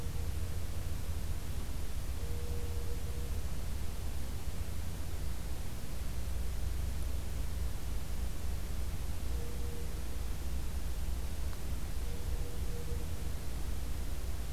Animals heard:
forest ambience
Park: Acadia National Park